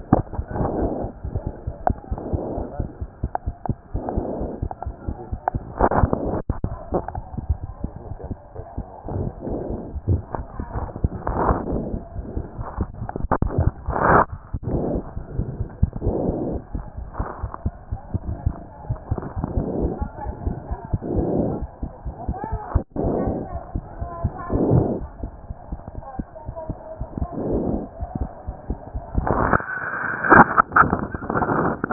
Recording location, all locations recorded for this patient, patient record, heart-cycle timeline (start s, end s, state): aortic valve (AV)
aortic valve (AV)+mitral valve (MV)
#Age: Child
#Sex: Male
#Height: 95.0 cm
#Weight: 14.5 kg
#Pregnancy status: False
#Murmur: Absent
#Murmur locations: nan
#Most audible location: nan
#Systolic murmur timing: nan
#Systolic murmur shape: nan
#Systolic murmur grading: nan
#Systolic murmur pitch: nan
#Systolic murmur quality: nan
#Diastolic murmur timing: nan
#Diastolic murmur shape: nan
#Diastolic murmur grading: nan
#Diastolic murmur pitch: nan
#Diastolic murmur quality: nan
#Outcome: Normal
#Campaign: 2014 screening campaign
0.00	21.59	unannotated
21.59	21.60	diastole
21.60	21.68	S1
21.68	21.82	systole
21.82	21.88	S2
21.88	22.06	diastole
22.06	22.14	S1
22.14	22.26	systole
22.26	22.34	S2
22.34	22.52	diastole
22.52	22.60	S1
22.60	22.74	systole
22.74	22.84	S2
22.84	23.02	diastole
23.02	23.14	S1
23.14	23.26	systole
23.26	23.40	S2
23.40	23.54	diastole
23.54	23.62	S1
23.62	23.74	systole
23.74	23.84	S2
23.84	24.02	diastole
24.02	24.10	S1
24.10	24.22	systole
24.22	24.30	S2
24.30	24.54	diastole
24.54	24.64	S1
24.64	24.87	systole
24.87	25.05	S2
25.05	25.24	diastole
25.24	25.32	S1
25.32	25.46	systole
25.46	25.54	S2
25.54	25.72	diastole
25.72	25.80	S1
25.80	25.94	systole
25.94	26.02	S2
26.02	26.20	diastole
26.20	26.26	S1
26.26	26.46	systole
26.46	26.54	S2
26.54	26.70	diastole
26.70	26.78	S1
26.78	26.98	systole
26.98	27.06	S2
27.06	27.13	diastole
27.13	31.92	unannotated